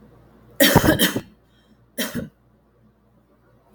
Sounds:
Cough